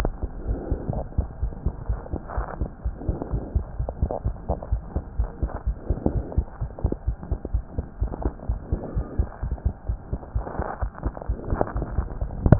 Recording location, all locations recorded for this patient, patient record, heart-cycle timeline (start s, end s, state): aortic valve (AV)
aortic valve (AV)+pulmonary valve (PV)+tricuspid valve (TV)+mitral valve (MV)
#Age: Child
#Sex: Female
#Height: 99.0 cm
#Weight: 31.1 kg
#Pregnancy status: False
#Murmur: Absent
#Murmur locations: nan
#Most audible location: nan
#Systolic murmur timing: nan
#Systolic murmur shape: nan
#Systolic murmur grading: nan
#Systolic murmur pitch: nan
#Systolic murmur quality: nan
#Diastolic murmur timing: nan
#Diastolic murmur shape: nan
#Diastolic murmur grading: nan
#Diastolic murmur pitch: nan
#Diastolic murmur quality: nan
#Outcome: Normal
#Campaign: 2015 screening campaign
0.00	1.39	unannotated
1.39	1.52	S1
1.52	1.63	systole
1.63	1.74	S2
1.74	1.86	diastole
1.86	2.00	S1
2.00	2.10	systole
2.10	2.20	S2
2.20	2.35	diastole
2.35	2.48	S1
2.48	2.58	systole
2.58	2.70	S2
2.70	2.82	diastole
2.82	2.96	S1
2.96	3.06	systole
3.06	3.18	S2
3.18	3.30	diastole
3.30	3.44	S1
3.44	3.52	systole
3.52	3.66	S2
3.66	3.77	diastole
3.77	3.90	S1
3.90	4.00	systole
4.00	4.09	S2
4.09	4.24	diastole
4.24	4.34	S1
4.34	4.47	systole
4.47	4.58	S2
4.58	4.69	diastole
4.69	4.80	S1
4.80	4.93	systole
4.93	5.04	S2
5.04	5.16	diastole
5.16	5.30	S1
5.30	5.40	systole
5.40	5.52	S2
5.52	5.65	diastole
5.65	5.78	S1
5.78	5.87	systole
5.87	6.00	S2
6.00	12.59	unannotated